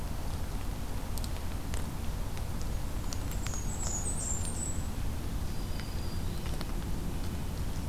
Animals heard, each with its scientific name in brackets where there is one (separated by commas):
Black-throated Green Warbler (Setophaga virens), Blackburnian Warbler (Setophaga fusca)